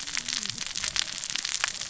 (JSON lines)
{"label": "biophony, cascading saw", "recorder": "SoundTrap 600 or HydroMoth"}